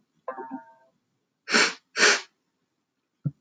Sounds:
Sniff